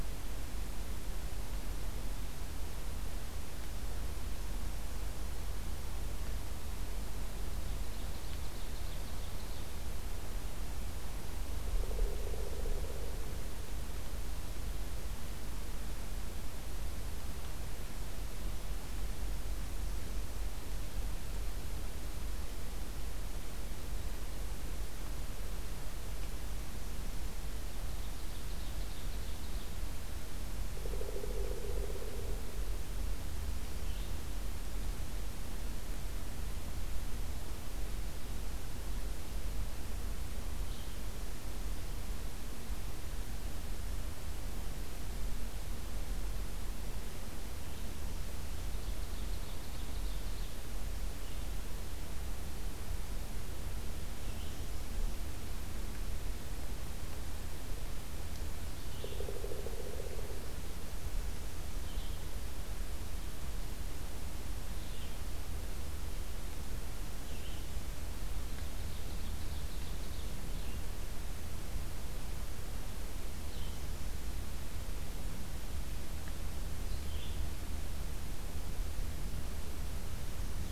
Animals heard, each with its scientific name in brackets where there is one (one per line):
Red-eyed Vireo (Vireo olivaceus)
Ovenbird (Seiurus aurocapilla)
Pileated Woodpecker (Dryocopus pileatus)